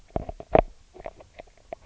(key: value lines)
label: biophony, knock croak
recorder: SoundTrap 300